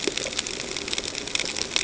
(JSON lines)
{"label": "ambient", "recorder": "HydroMoth"}